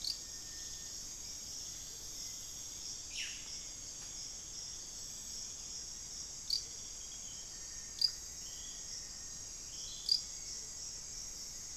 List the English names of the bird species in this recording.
Hauxwell's Thrush, unidentified bird, Amazonian Motmot, Black-faced Antthrush, Rufous-fronted Antthrush